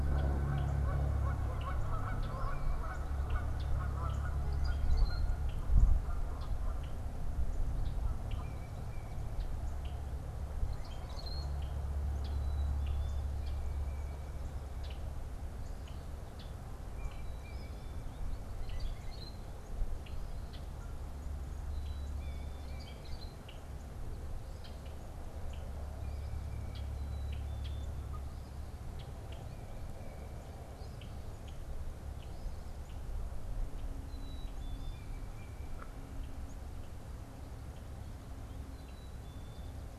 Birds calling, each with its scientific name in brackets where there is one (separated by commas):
Rusty Blackbird (Euphagus carolinus), Black-capped Chickadee (Poecile atricapillus), Canada Goose (Branta canadensis), Tufted Titmouse (Baeolophus bicolor)